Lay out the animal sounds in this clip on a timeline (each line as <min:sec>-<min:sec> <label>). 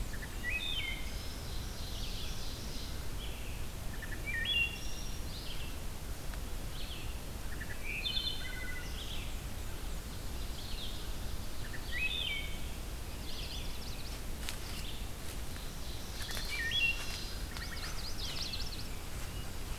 0:00.0-0:00.9 Black-and-white Warbler (Mniotilta varia)
0:00.0-0:16.6 Red-eyed Vireo (Vireo olivaceus)
0:00.0-0:01.4 Wood Thrush (Hylocichla mustelina)
0:01.2-0:03.2 Ovenbird (Seiurus aurocapilla)
0:03.8-0:05.3 Wood Thrush (Hylocichla mustelina)
0:07.5-0:08.9 Wood Thrush (Hylocichla mustelina)
0:08.9-0:11.0 Black-and-white Warbler (Mniotilta varia)
0:11.5-0:12.6 Wood Thrush (Hylocichla mustelina)
0:12.9-0:14.4 Chestnut-sided Warbler (Setophaga pensylvanica)
0:15.0-0:17.5 Ovenbird (Seiurus aurocapilla)
0:16.0-0:17.9 Wood Thrush (Hylocichla mustelina)
0:17.4-0:19.1 Chestnut-sided Warbler (Setophaga pensylvanica)
0:18.0-0:19.8 Red-eyed Vireo (Vireo olivaceus)
0:18.2-0:19.8 Black-and-white Warbler (Mniotilta varia)
0:18.7-0:19.8 American Robin (Turdus migratorius)